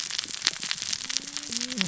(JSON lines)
{"label": "biophony, cascading saw", "recorder": "SoundTrap 600 or HydroMoth"}